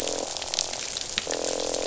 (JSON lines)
{"label": "biophony, croak", "recorder": "SoundTrap 500"}